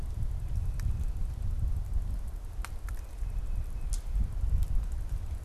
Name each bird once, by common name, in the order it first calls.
Tufted Titmouse